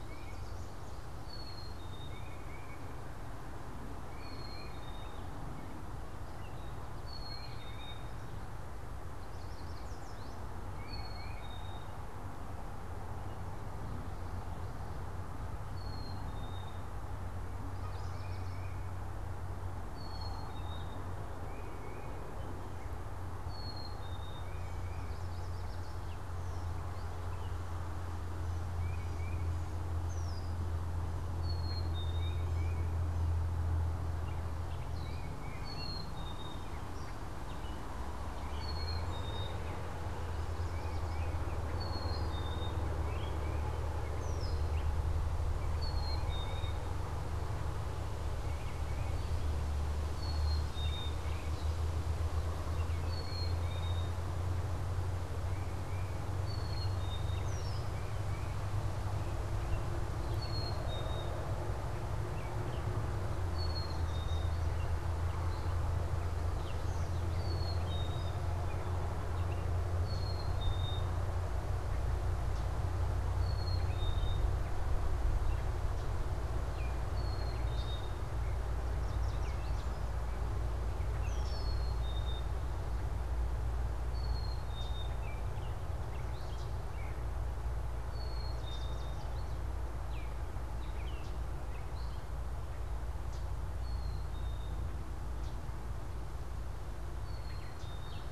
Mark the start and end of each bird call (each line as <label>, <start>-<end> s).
Black-capped Chickadee (Poecile atricapillus), 0.0-12.1 s
Yellow Warbler (Setophaga petechia), 9.0-10.5 s
Black-capped Chickadee (Poecile atricapillus), 15.7-74.6 s
Tufted Titmouse (Baeolophus bicolor), 17.9-58.8 s
Yellow Warbler (Setophaga petechia), 24.7-26.2 s
Yellow Warbler (Setophaga petechia), 40.2-41.5 s
Gray Catbird (Dumetella carolinensis), 42.8-45.0 s
Black-capped Chickadee (Poecile atricapillus), 77.1-98.3 s
Yellow Warbler (Setophaga petechia), 78.8-80.1 s
Red-winged Blackbird (Agelaius phoeniceus), 81.1-81.8 s
Common Yellowthroat (Geothlypis trichas), 84.7-85.0 s
Gray Catbird (Dumetella carolinensis), 85.1-92.5 s
Yellow Warbler (Setophaga petechia), 88.4-89.6 s
Baltimore Oriole (Icterus galbula), 90.0-91.4 s
Common Yellowthroat (Geothlypis trichas), 93.1-98.3 s